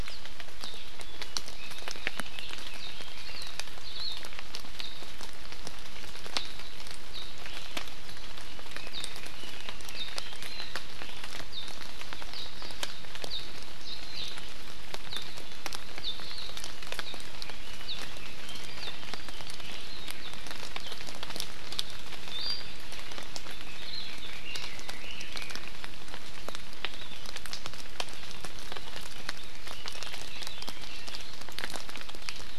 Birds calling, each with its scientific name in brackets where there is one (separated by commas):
Iiwi (Drepanis coccinea), Hawaii Akepa (Loxops coccineus), Apapane (Himatione sanguinea), Red-billed Leiothrix (Leiothrix lutea)